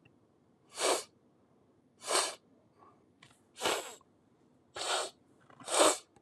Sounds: Sniff